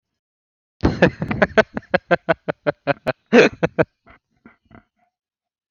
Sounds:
Laughter